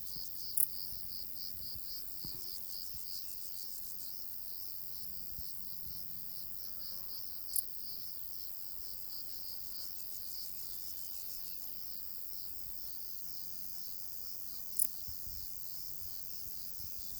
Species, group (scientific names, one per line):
Decticus verrucivorus
Orthoptera